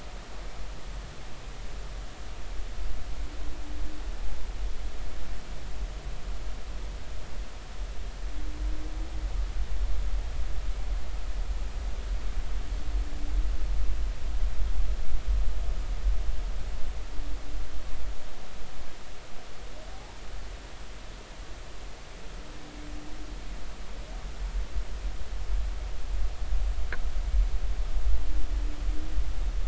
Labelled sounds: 19.9	20.2	humpback whale, 0.80 to 0.99 kHz

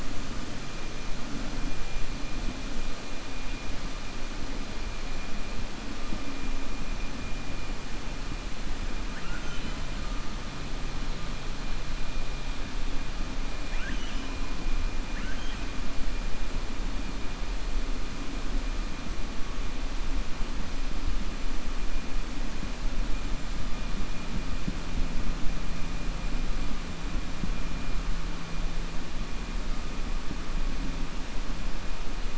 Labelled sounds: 9.0	9.8	killer whale, 1.3 to 4.0 kHz
13.6	14.3	killer whale, 1.4 to 3.6 kHz
15.0	15.6	killer whale, 1.4 to 3.3 kHz

